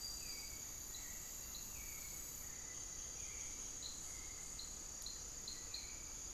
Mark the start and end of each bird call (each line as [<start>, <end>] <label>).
[0.00, 6.33] Hauxwell's Thrush (Turdus hauxwelli)